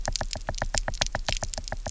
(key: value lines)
label: biophony, knock
recorder: SoundTrap 300